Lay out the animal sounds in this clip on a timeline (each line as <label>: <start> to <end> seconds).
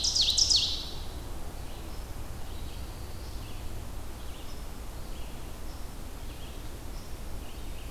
Ovenbird (Seiurus aurocapilla): 0.0 to 0.9 seconds
Red-eyed Vireo (Vireo olivaceus): 1.5 to 7.9 seconds
unknown mammal: 1.7 to 7.9 seconds
Pine Warbler (Setophaga pinus): 2.5 to 3.6 seconds